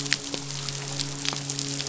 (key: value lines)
label: biophony, midshipman
recorder: SoundTrap 500